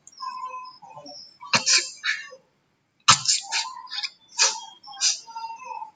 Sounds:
Sneeze